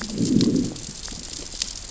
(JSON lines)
{"label": "biophony, growl", "recorder": "SoundTrap 600 or HydroMoth"}